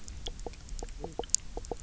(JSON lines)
{"label": "biophony, knock croak", "recorder": "SoundTrap 300"}